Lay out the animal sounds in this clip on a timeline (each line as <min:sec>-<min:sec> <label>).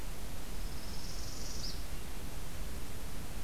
0:00.5-0:01.8 Northern Parula (Setophaga americana)